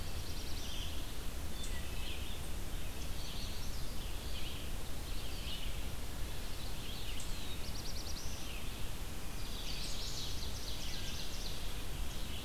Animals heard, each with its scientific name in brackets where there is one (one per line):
Eastern Chipmunk (Tamias striatus)
Red-eyed Vireo (Vireo olivaceus)
Black-throated Blue Warbler (Setophaga caerulescens)
Chestnut-sided Warbler (Setophaga pensylvanica)
Ovenbird (Seiurus aurocapilla)